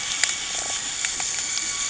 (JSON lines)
{"label": "anthrophony, boat engine", "recorder": "HydroMoth"}